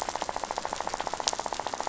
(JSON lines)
{"label": "biophony, rattle", "recorder": "SoundTrap 500"}